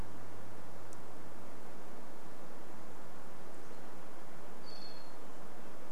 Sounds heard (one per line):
Varied Thrush call